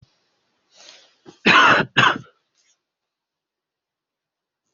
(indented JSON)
{
  "expert_labels": [
    {
      "quality": "ok",
      "cough_type": "wet",
      "dyspnea": false,
      "wheezing": false,
      "stridor": false,
      "choking": false,
      "congestion": false,
      "nothing": true,
      "diagnosis": "lower respiratory tract infection",
      "severity": "mild"
    }
  ],
  "age": 22,
  "gender": "male",
  "respiratory_condition": false,
  "fever_muscle_pain": true,
  "status": "symptomatic"
}